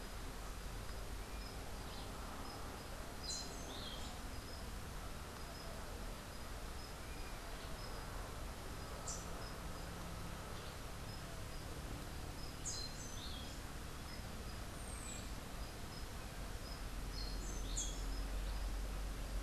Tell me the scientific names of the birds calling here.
Catharus aurantiirostris, Saltator maximus